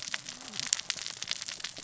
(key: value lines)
label: biophony, cascading saw
recorder: SoundTrap 600 or HydroMoth